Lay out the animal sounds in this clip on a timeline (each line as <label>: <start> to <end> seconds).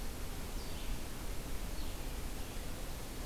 Red-eyed Vireo (Vireo olivaceus): 0.5 to 3.3 seconds